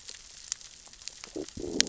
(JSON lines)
{"label": "biophony, growl", "recorder": "SoundTrap 600 or HydroMoth"}